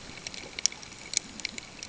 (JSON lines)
{"label": "ambient", "recorder": "HydroMoth"}